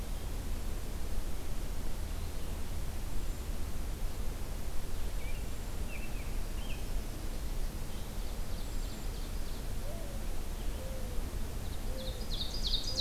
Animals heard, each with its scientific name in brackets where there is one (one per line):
American Robin (Turdus migratorius)
Hermit Thrush (Catharus guttatus)
Ovenbird (Seiurus aurocapilla)
Mourning Dove (Zenaida macroura)